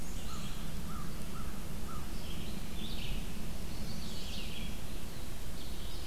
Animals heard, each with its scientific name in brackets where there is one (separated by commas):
Black-and-white Warbler (Mniotilta varia), American Crow (Corvus brachyrhynchos), Chestnut-sided Warbler (Setophaga pensylvanica), Red-eyed Vireo (Vireo olivaceus)